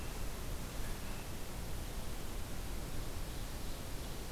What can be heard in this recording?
Ovenbird